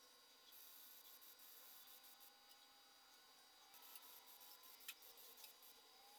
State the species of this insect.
Tettigonia longispina